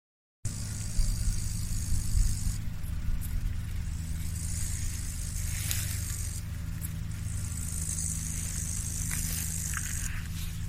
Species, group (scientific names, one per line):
Tettigonia cantans
Orthoptera